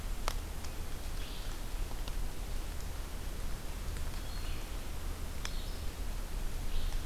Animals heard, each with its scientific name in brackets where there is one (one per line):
Red-eyed Vireo (Vireo olivaceus)